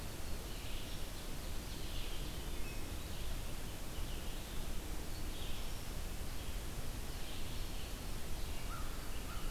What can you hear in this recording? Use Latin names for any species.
Vireo olivaceus, Seiurus aurocapilla, Hylocichla mustelina, Setophaga virens, Corvus brachyrhynchos